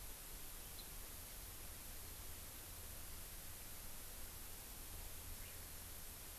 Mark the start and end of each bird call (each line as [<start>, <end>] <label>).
[0.68, 0.88] House Finch (Haemorhous mexicanus)
[5.38, 5.48] Eurasian Skylark (Alauda arvensis)